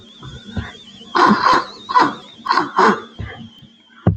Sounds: Sniff